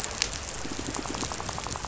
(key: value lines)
label: biophony, rattle
recorder: SoundTrap 500